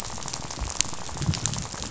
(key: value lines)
label: biophony, rattle
recorder: SoundTrap 500